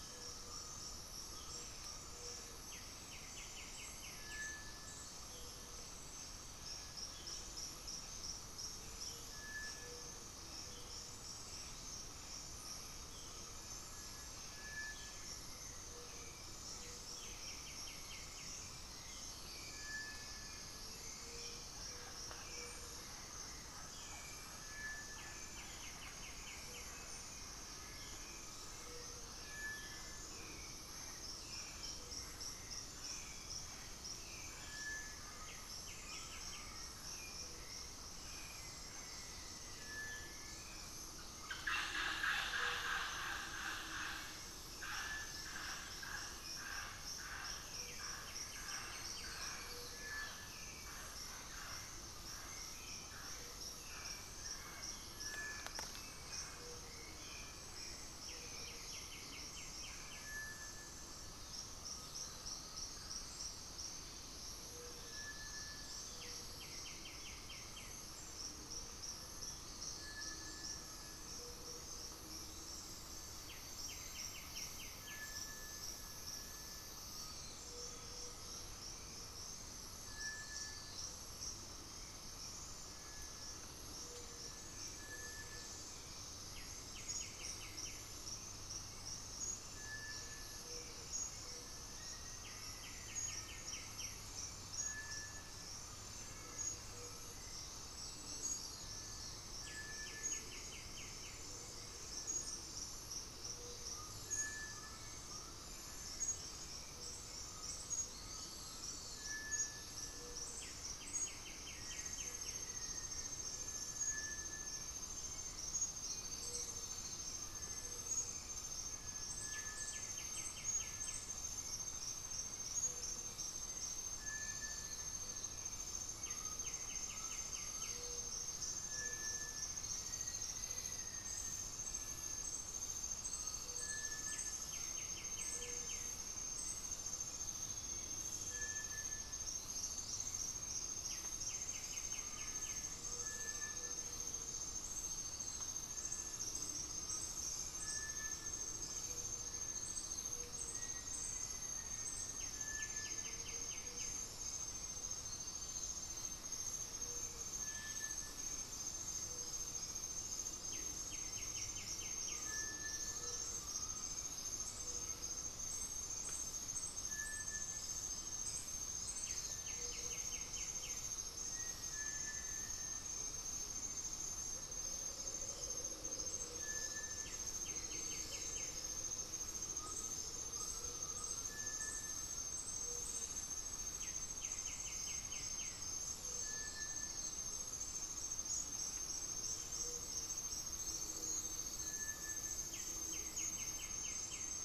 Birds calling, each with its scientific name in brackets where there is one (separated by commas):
Hauxwell's Thrush (Turdus hauxwelli), Black-throated Antbird (Myrmophylax atrothorax), Chestnut-winged Foliage-gleaner (Dendroma erythroptera), White-winged Becard (Pachyramphus polychopterus), Mealy Parrot (Amazona farinosa), Undulated Tinamou (Crypturellus undulatus), unidentified bird, Black-faced Antthrush (Formicarius analis), Cinereous Tinamou (Crypturellus cinereus), Gray-fronted Dove (Leptotila rufaxilla), Amazonian Motmot (Momotus momota)